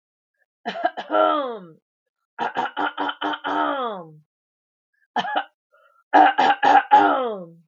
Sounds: Throat clearing